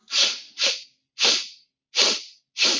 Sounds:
Sniff